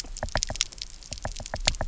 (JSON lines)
{"label": "biophony, knock", "recorder": "SoundTrap 300"}